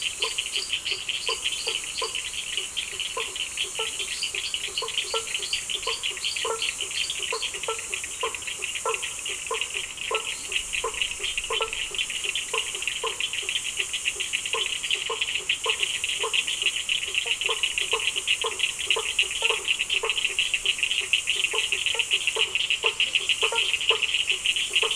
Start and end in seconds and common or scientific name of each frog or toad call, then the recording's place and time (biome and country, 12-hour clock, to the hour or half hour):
0.0	7.7	lesser tree frog
0.0	24.2	blacksmith tree frog
0.0	24.9	Cochran's lime tree frog
10.3	10.7	lesser tree frog
Atlantic Forest, Brazil, 7pm